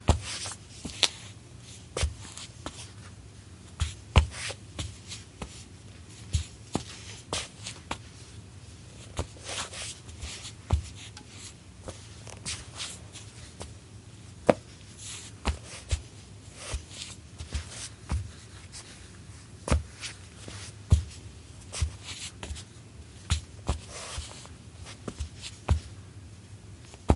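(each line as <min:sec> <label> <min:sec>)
0:00.0 Continuous soft thumping without a clear rhythm. 0:27.2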